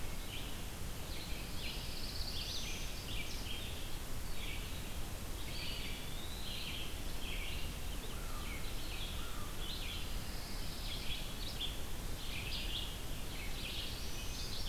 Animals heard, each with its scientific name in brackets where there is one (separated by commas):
Eastern Wood-Pewee (Contopus virens), Black-throated Blue Warbler (Setophaga caerulescens), American Crow (Corvus brachyrhynchos), Red-eyed Vireo (Vireo olivaceus), Pine Warbler (Setophaga pinus)